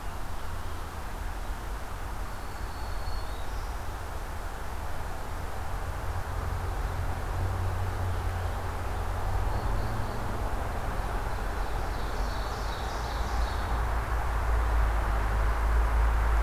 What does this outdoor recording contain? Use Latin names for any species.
Setophaga virens, Setophaga caerulescens, Seiurus aurocapilla